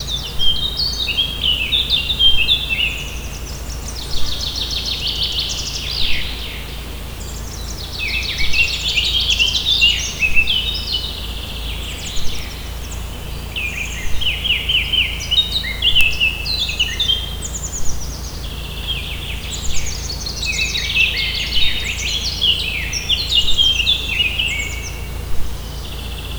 Is there a dog barking?
no